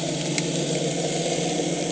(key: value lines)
label: anthrophony, boat engine
recorder: HydroMoth